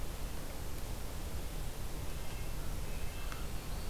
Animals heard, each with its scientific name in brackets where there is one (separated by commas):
American Crow (Corvus brachyrhynchos), White-breasted Nuthatch (Sitta carolinensis), Red-breasted Nuthatch (Sitta canadensis)